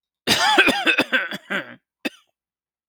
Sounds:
Cough